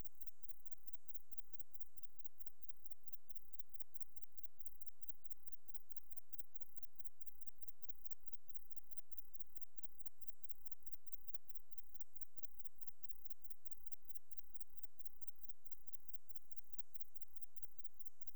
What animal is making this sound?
Platycleis intermedia, an orthopteran